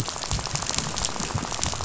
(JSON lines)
{"label": "biophony, rattle", "recorder": "SoundTrap 500"}